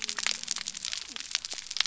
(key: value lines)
label: biophony
recorder: SoundTrap 300